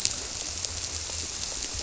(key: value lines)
label: biophony
recorder: SoundTrap 300